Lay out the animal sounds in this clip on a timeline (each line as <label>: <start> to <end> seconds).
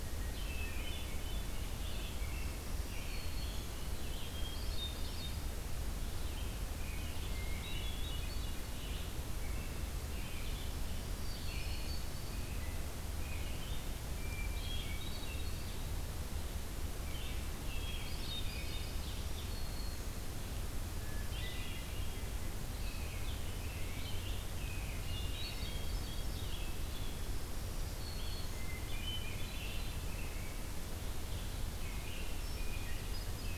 Blue-headed Vireo (Vireo solitarius): 0.0 to 33.6 seconds
Hermit Thrush (Catharus guttatus): 0.2 to 1.7 seconds
American Robin (Turdus migratorius): 2.1 to 4.4 seconds
Black-throated Green Warbler (Setophaga virens): 2.3 to 3.8 seconds
Hermit Thrush (Catharus guttatus): 4.2 to 5.5 seconds
American Robin (Turdus migratorius): 6.3 to 8.0 seconds
Hermit Thrush (Catharus guttatus): 7.2 to 8.6 seconds
American Robin (Turdus migratorius): 9.3 to 13.8 seconds
Hermit Thrush (Catharus guttatus): 10.8 to 12.7 seconds
Hermit Thrush (Catharus guttatus): 14.0 to 15.7 seconds
American Robin (Turdus migratorius): 16.9 to 19.0 seconds
Hermit Thrush (Catharus guttatus): 17.7 to 19.0 seconds
Black-throated Green Warbler (Setophaga virens): 18.8 to 20.3 seconds
Hermit Thrush (Catharus guttatus): 20.8 to 22.3 seconds
American Robin (Turdus migratorius): 22.7 to 24.1 seconds
American Robin (Turdus migratorius): 24.5 to 25.8 seconds
Hermit Thrush (Catharus guttatus): 24.6 to 26.5 seconds
Black-throated Green Warbler (Setophaga virens): 27.2 to 28.8 seconds
Hermit Thrush (Catharus guttatus): 28.4 to 30.1 seconds
American Robin (Turdus migratorius): 29.4 to 30.6 seconds
American Robin (Turdus migratorius): 31.8 to 33.6 seconds
Hermit Thrush (Catharus guttatus): 32.3 to 33.6 seconds